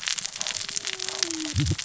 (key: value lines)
label: biophony, cascading saw
recorder: SoundTrap 600 or HydroMoth